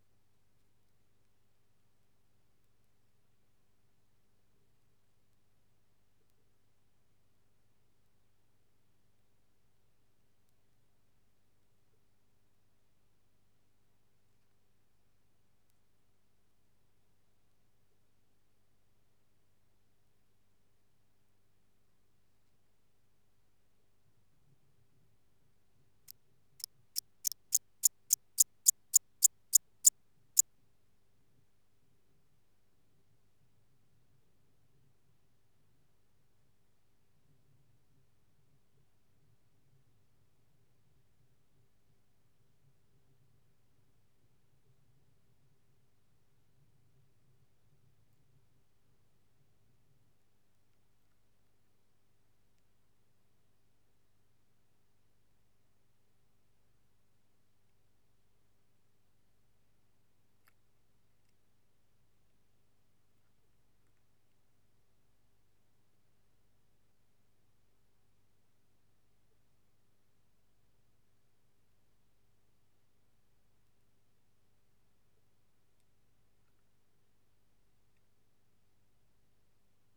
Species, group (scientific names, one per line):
Eupholidoptera smyrnensis
Orthoptera